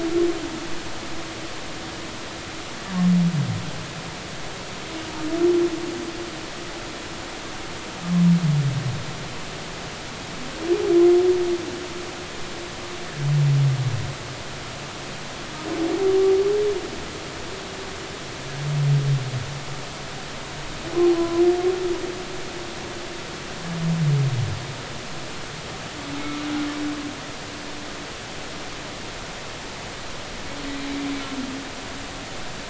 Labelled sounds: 21.2	21.4	humpback whale, 0.96 to 1.1 kHz

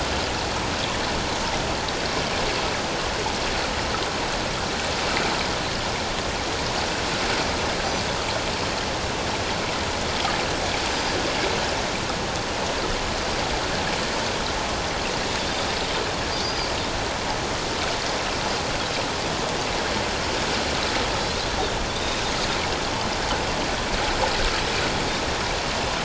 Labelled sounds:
16.4	16.7	Pacific white-sided dolphin, 4.5 to 4.9 kHz
21.9	22.2	Pacific white-sided dolphin, 3.4 to 3.8 kHz

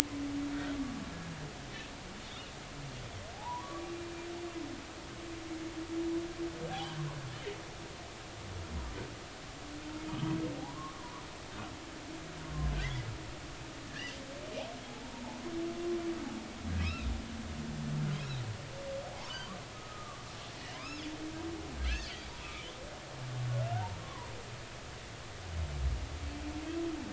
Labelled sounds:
0.5	0.8	humpback whale, 1.3 to 1.6 kHz
2.2	2.5	humpback whale, 3.3 to 3.8 kHz
3.3	3.9	humpback whale, 0.80 to 1.2 kHz
6.7	7.0	humpback whale, 0.80 to 3.5 kHz
10.5	11.1	humpback whale, 0.80 to 1.2 kHz
13.9	15.2	humpback whale, 0.80 to 3.2 kHz
16.8	17.1	humpback whale, 2.4 to 2.8 kHz
19.1	21.1	humpback whale, 0.80 to 5.4 kHz
25.0	25.3	humpback whale, 0.93 to 1.2 kHz

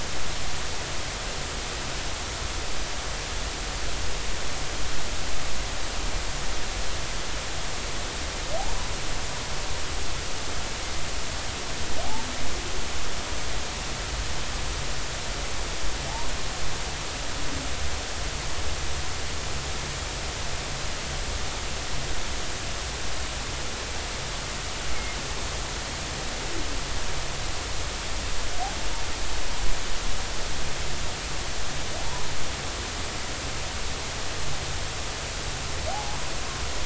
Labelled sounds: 35.9	36.2	humpback whale, 0.80 to 0.90 kHz

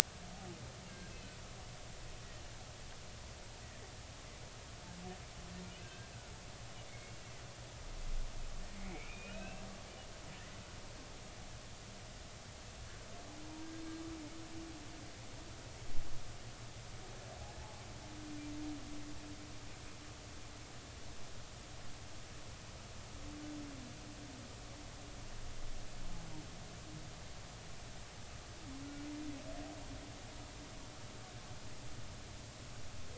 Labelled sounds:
5.8	7.1	humpback whale, 1.5 to 2.3 kHz
8.9	9.6	humpback whale, 1.3 to 2.8 kHz

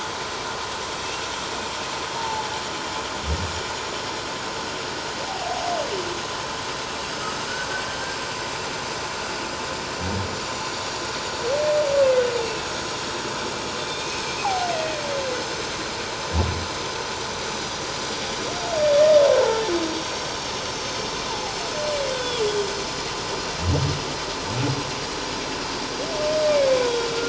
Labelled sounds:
2.2	2.5	humpback whale, 0.78 to 0.97 kHz
5.3	5.6	humpback whale, 0.78 to 0.88 kHz
12.4	12.7	humpback whale, 2.6 to 2.8 kHz
13.9	15.0	humpback whale, 0.78 to 2.6 kHz
21.3	22.1	humpback whale, 0.78 to 7.8 kHz
26.8	27.2	humpback whale, 1.3 to 1.5 kHz

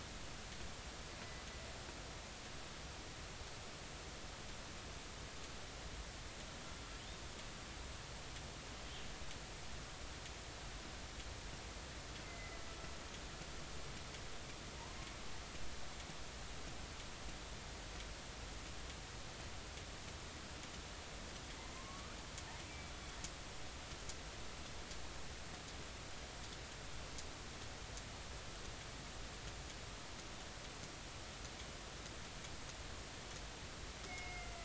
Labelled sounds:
12.2	12.6	killer whale, northern resident, A clan, AB subclan, B01 pod, call N01ii, 2.0 to 2.1 kHz
21.7	22.2	killer whale, northern resident, A clan, AB subclan, call N16, 0.99 to 1.3 kHz
34.1	34.6	killer whale, northern resident, A clan, AB subclan, B01 pod, call N18, 2.0 to 2.3 kHz

